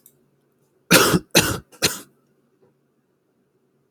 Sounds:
Cough